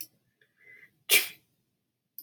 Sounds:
Sneeze